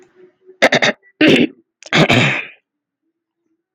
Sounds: Throat clearing